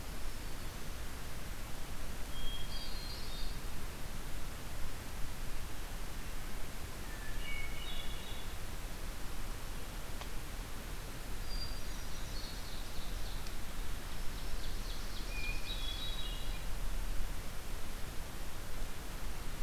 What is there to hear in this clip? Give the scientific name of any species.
Setophaga virens, Catharus guttatus, Seiurus aurocapilla